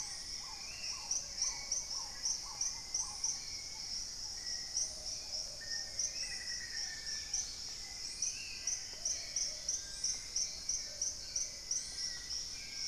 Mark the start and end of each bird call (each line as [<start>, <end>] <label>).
[0.00, 1.16] Spot-winged Antshrike (Pygiptila stellaris)
[0.00, 8.16] Black-tailed Trogon (Trogon melanurus)
[0.00, 12.88] Hauxwell's Thrush (Turdus hauxwelli)
[0.00, 12.88] Paradise Tanager (Tangara chilensis)
[0.00, 12.88] Plumbeous Pigeon (Patagioenas plumbea)
[5.46, 7.56] Black-faced Antthrush (Formicarius analis)
[6.66, 12.88] Dusky-capped Greenlet (Pachysylvia hypoxantha)
[8.06, 12.88] Spot-winged Antshrike (Pygiptila stellaris)
[9.56, 12.88] Long-billed Woodcreeper (Nasica longirostris)